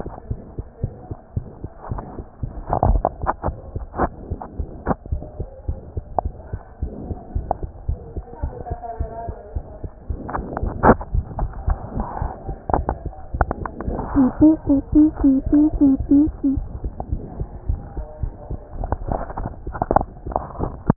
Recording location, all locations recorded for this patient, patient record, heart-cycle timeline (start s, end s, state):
mitral valve (MV)
aortic valve (AV)+pulmonary valve (PV)+tricuspid valve (TV)+mitral valve (MV)
#Age: Child
#Sex: Male
#Height: 124.0 cm
#Weight: 22.1 kg
#Pregnancy status: False
#Murmur: Present
#Murmur locations: aortic valve (AV)+mitral valve (MV)+pulmonary valve (PV)+tricuspid valve (TV)
#Most audible location: tricuspid valve (TV)
#Systolic murmur timing: Holosystolic
#Systolic murmur shape: Plateau
#Systolic murmur grading: II/VI
#Systolic murmur pitch: Medium
#Systolic murmur quality: Harsh
#Diastolic murmur timing: nan
#Diastolic murmur shape: nan
#Diastolic murmur grading: nan
#Diastolic murmur pitch: nan
#Diastolic murmur quality: nan
#Outcome: Abnormal
#Campaign: 2015 screening campaign
0.00	5.10	unannotated
5.10	5.24	S1
5.24	5.38	systole
5.38	5.48	S2
5.48	5.66	diastole
5.66	5.78	S1
5.78	5.94	systole
5.94	6.04	S2
6.04	6.22	diastole
6.22	6.34	S1
6.34	6.50	systole
6.50	6.60	S2
6.60	6.80	diastole
6.80	6.94	S1
6.94	7.08	systole
7.08	7.18	S2
7.18	7.34	diastole
7.34	7.46	S1
7.46	7.58	systole
7.58	7.68	S2
7.68	7.86	diastole
7.86	8.00	S1
8.00	8.14	systole
8.14	8.24	S2
8.24	8.42	diastole
8.42	8.54	S1
8.54	8.70	systole
8.70	8.80	S2
8.80	8.96	diastole
8.96	9.06	S1
9.06	9.26	systole
9.26	9.36	S2
9.36	9.54	diastole
9.54	9.64	S1
9.64	9.82	systole
9.82	9.92	S2
9.92	10.08	diastole
10.08	10.20	S1
10.20	10.36	systole
10.36	10.46	S2
10.46	10.60	diastole
10.60	10.74	S1
10.74	20.96	unannotated